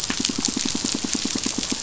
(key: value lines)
label: biophony, pulse
recorder: SoundTrap 500